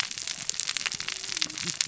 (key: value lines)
label: biophony, cascading saw
recorder: SoundTrap 600 or HydroMoth